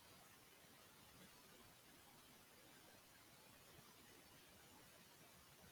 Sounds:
Sniff